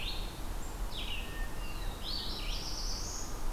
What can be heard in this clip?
Red-eyed Vireo, Hermit Thrush, Black-throated Blue Warbler